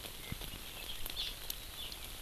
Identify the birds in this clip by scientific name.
Chlorodrepanis virens